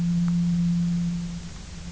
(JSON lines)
{"label": "anthrophony, boat engine", "recorder": "SoundTrap 300"}